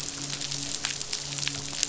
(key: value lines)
label: biophony, midshipman
recorder: SoundTrap 500